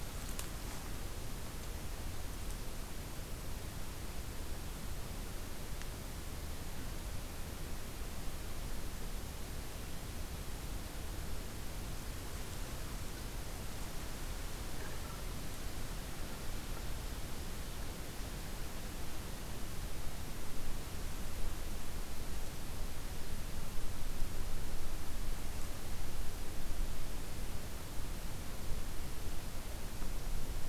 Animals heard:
forest ambience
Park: Katahdin Woods and Waters National Monument